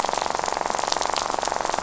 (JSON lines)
{"label": "biophony, rattle", "recorder": "SoundTrap 500"}